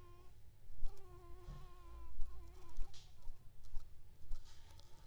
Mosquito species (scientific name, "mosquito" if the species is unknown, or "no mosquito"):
Anopheles ziemanni